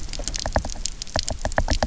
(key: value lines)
label: biophony, knock
recorder: SoundTrap 300